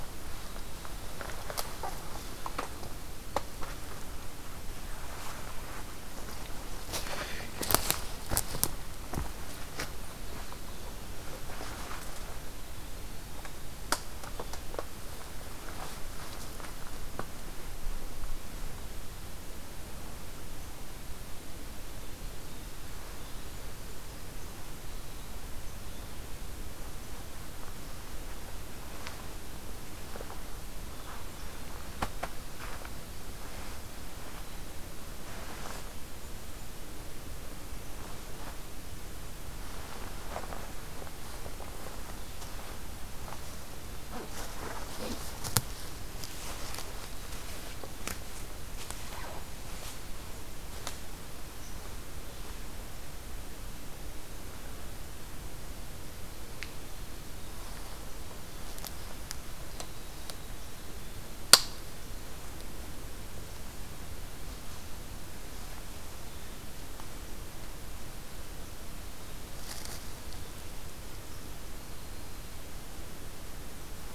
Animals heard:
forest ambience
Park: Katahdin Woods and Waters National Monument